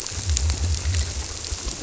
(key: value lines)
label: biophony
recorder: SoundTrap 300